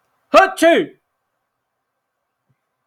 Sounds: Sneeze